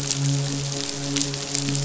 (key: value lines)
label: biophony, midshipman
recorder: SoundTrap 500